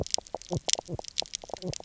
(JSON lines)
{"label": "biophony, knock croak", "recorder": "SoundTrap 300"}